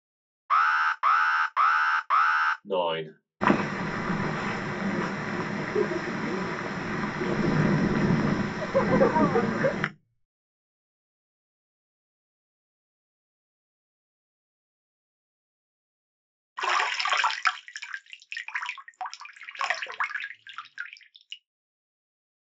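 At 0.49 seconds, the sound of an alarm can be heard. Then, at 2.65 seconds, someone says "nine." After that, at 3.4 seconds, wind is audible. Finally, at 16.56 seconds, you can hear a bathtub filling or washing.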